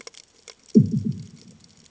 {"label": "anthrophony, bomb", "recorder": "HydroMoth"}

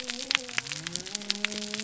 {"label": "biophony", "recorder": "SoundTrap 300"}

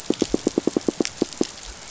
{"label": "biophony", "recorder": "SoundTrap 500"}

